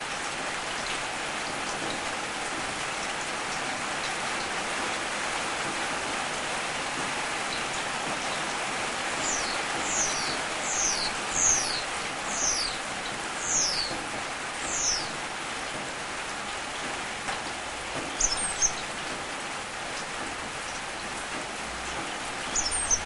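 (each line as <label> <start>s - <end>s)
Heavy rain is pouring. 0.0s - 23.1s
A high-pitched animal sound repeats. 9.3s - 15.4s
An animal makes a high-pitched sound. 18.1s - 18.9s
An animal makes a high-pitched sound. 22.5s - 23.1s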